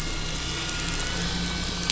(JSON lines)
{"label": "anthrophony, boat engine", "recorder": "SoundTrap 500"}